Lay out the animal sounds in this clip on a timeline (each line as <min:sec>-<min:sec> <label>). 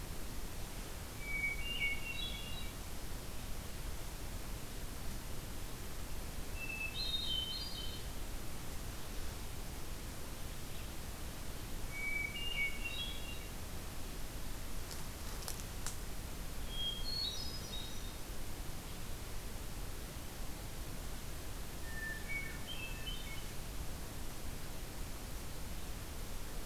0:01.1-0:03.0 Hermit Thrush (Catharus guttatus)
0:06.4-0:08.3 Hermit Thrush (Catharus guttatus)
0:11.9-0:13.7 Hermit Thrush (Catharus guttatus)
0:16.6-0:18.4 Hermit Thrush (Catharus guttatus)
0:21.6-0:24.0 Hermit Thrush (Catharus guttatus)